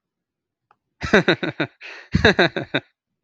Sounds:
Laughter